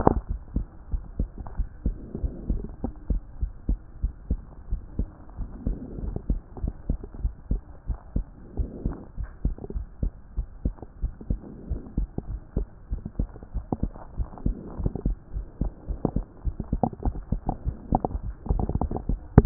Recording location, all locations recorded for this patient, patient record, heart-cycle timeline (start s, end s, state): pulmonary valve (PV)
pulmonary valve (PV)+tricuspid valve (TV)+mitral valve (MV)
#Age: Child
#Sex: Male
#Height: 121.0 cm
#Weight: 24.2 kg
#Pregnancy status: False
#Murmur: Absent
#Murmur locations: nan
#Most audible location: nan
#Systolic murmur timing: nan
#Systolic murmur shape: nan
#Systolic murmur grading: nan
#Systolic murmur pitch: nan
#Systolic murmur quality: nan
#Diastolic murmur timing: nan
#Diastolic murmur shape: nan
#Diastolic murmur grading: nan
#Diastolic murmur pitch: nan
#Diastolic murmur quality: nan
#Outcome: Normal
#Campaign: 2014 screening campaign
0.00	0.30	unannotated
0.30	0.39	S1
0.39	0.54	systole
0.54	0.66	S2
0.66	0.92	diastole
0.92	1.02	S1
1.02	1.18	systole
1.18	1.28	S2
1.28	1.58	diastole
1.58	1.68	S1
1.68	1.84	systole
1.84	1.96	S2
1.96	2.22	diastole
2.22	2.32	S1
2.32	2.50	systole
2.50	2.62	S2
2.62	2.84	diastole
2.84	2.94	S1
2.94	3.08	systole
3.08	3.20	S2
3.20	3.42	diastole
3.42	19.46	unannotated